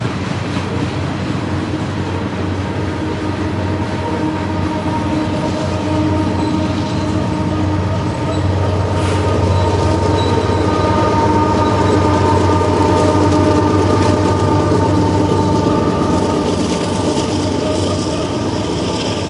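A train passes by slowly. 0.0 - 19.3

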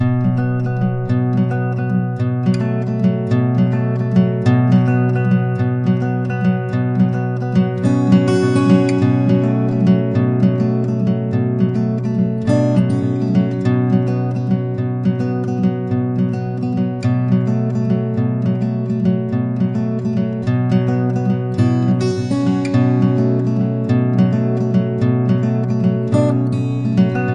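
An acoustic guitar plays a rhythmic sound. 0.0 - 27.3

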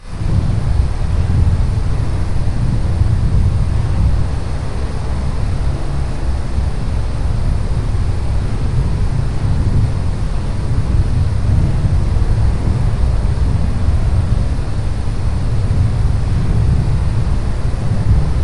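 Wind blowing quietly in a monotone manner nearby. 0.0 - 18.4

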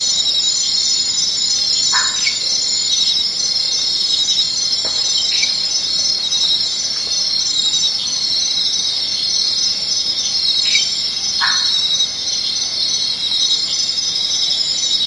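A high-pitched chirring sound occurs with high intensity at varying distances in an unpredictable pattern. 0.0 - 15.1
A quacking sound of medium intensity. 1.9 - 2.2
A bird chirps once. 2.2 - 2.3
Three tweets sound from a distance. 2.9 - 3.2
Birds tweeting in the distance. 4.0 - 4.5
A bird tweets from a medium distance. 5.4 - 5.5
A quacking, tweeting sound. 10.7 - 10.9
A quacking sound of medium intensity. 11.3 - 11.7

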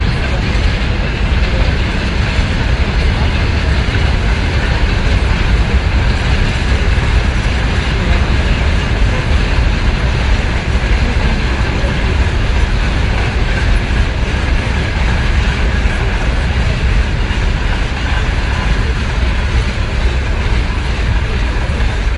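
Muffled, unclear conversation. 0.0 - 22.2
A train passes at normal speed, producing windy and mechanical sounds. 0.0 - 22.2

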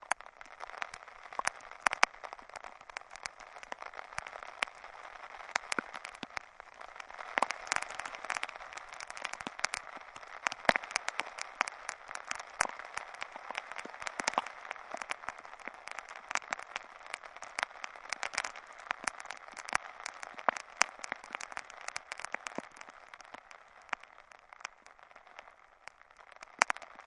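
Raindrops quietly and repeatedly hit a hard surface. 0.0 - 27.1

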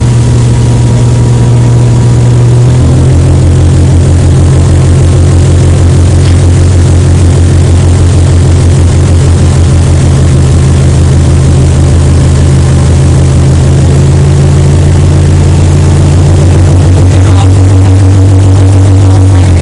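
An engine makes loud noises. 0.0 - 19.6

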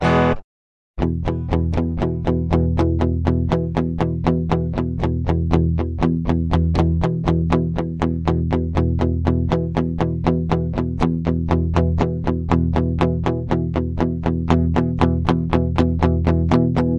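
An electric guitar plays a short chord. 0.0 - 0.5
Rhythmic electric guitar chords. 1.0 - 17.0

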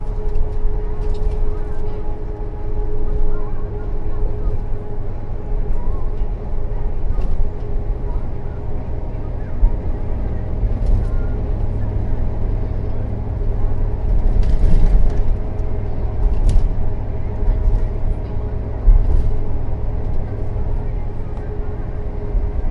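A heavy vehicle is rumbling. 0.0 - 22.7
Ambient music plays faintly and muffled. 0.0 - 22.7

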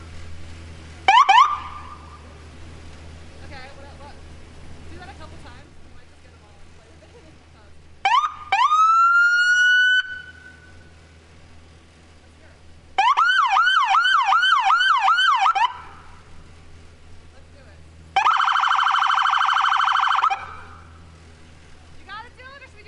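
An ambulance siren sounds with two short bursts. 1.0 - 1.9
Someone is speaking in the distance. 3.2 - 7.9
An ambulance siren sounds with one short burst followed by a long burst. 8.0 - 10.6
An ambulance siren starts at a low pitch and is followed by a repeated siren at high volume. 12.9 - 16.2
A fast and loud ambulance siren sounds. 18.1 - 21.0
Someone is speaking loudly in the distance. 22.0 - 22.9

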